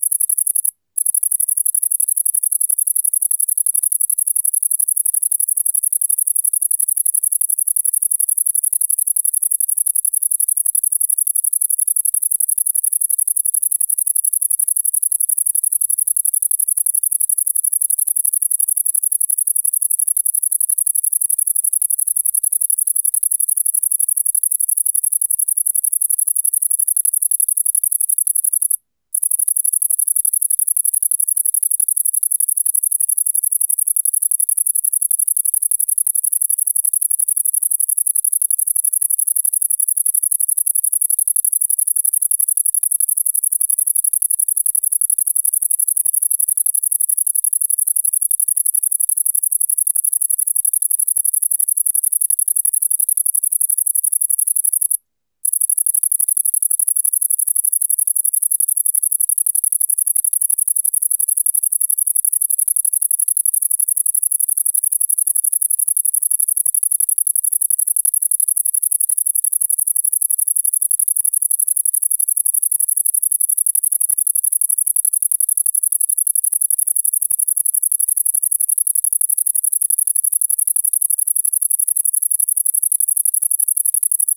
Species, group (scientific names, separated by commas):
Tettigonia viridissima, Orthoptera